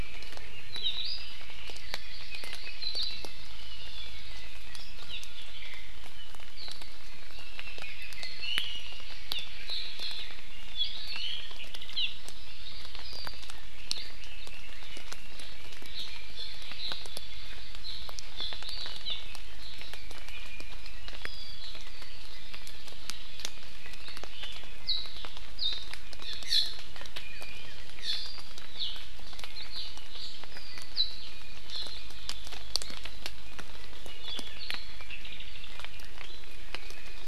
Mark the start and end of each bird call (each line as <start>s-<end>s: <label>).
0.7s-1.4s: Iiwi (Drepanis coccinea)
1.6s-2.8s: Hawaii Amakihi (Chlorodrepanis virens)
4.7s-5.5s: Iiwi (Drepanis coccinea)
5.1s-5.2s: Hawaii Amakihi (Chlorodrepanis virens)
8.4s-9.1s: Iiwi (Drepanis coccinea)
9.3s-10.3s: Hawaii Amakihi (Chlorodrepanis virens)
10.9s-11.5s: Iiwi (Drepanis coccinea)
12.0s-12.1s: Hawaii Amakihi (Chlorodrepanis virens)
16.4s-17.0s: Hawaii Amakihi (Chlorodrepanis virens)
17.8s-18.1s: Hawaii Amakihi (Chlorodrepanis virens)
18.4s-18.6s: Hawaii Amakihi (Chlorodrepanis virens)
18.6s-19.0s: Iiwi (Drepanis coccinea)
19.1s-19.2s: Hawaii Amakihi (Chlorodrepanis virens)
22.3s-23.4s: Hawaii Creeper (Loxops mana)
26.2s-26.8s: Hawaii Amakihi (Chlorodrepanis virens)
27.2s-27.8s: Iiwi (Drepanis coccinea)
28.0s-28.5s: Hawaii Amakihi (Chlorodrepanis virens)